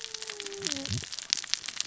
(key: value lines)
label: biophony, cascading saw
recorder: SoundTrap 600 or HydroMoth